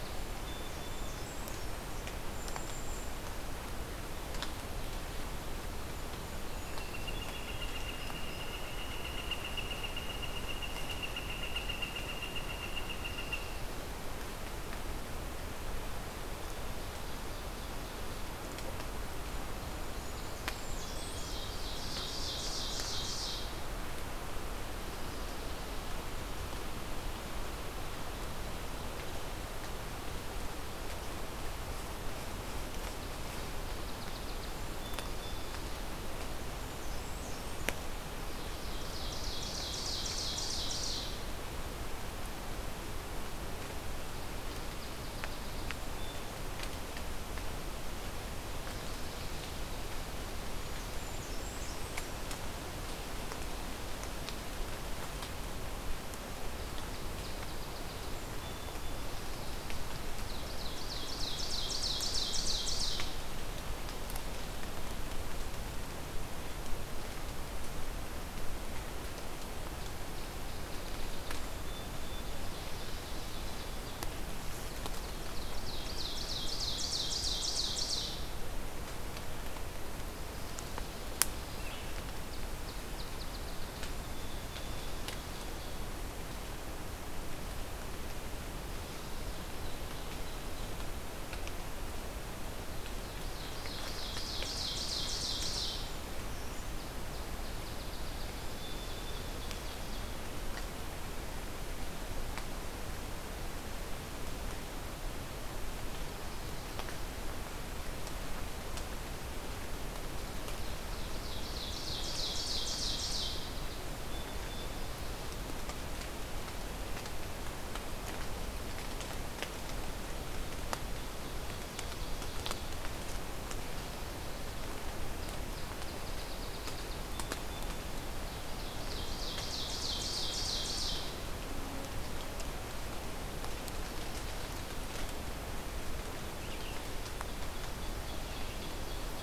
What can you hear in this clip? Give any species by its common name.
Song Sparrow, Blackburnian Warbler, Golden-crowned Kinglet, Northern Flicker, Ovenbird, Brown Creeper, Red-eyed Vireo